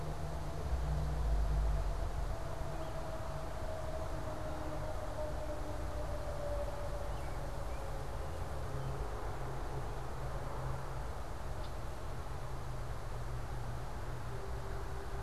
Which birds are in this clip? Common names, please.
Red-winged Blackbird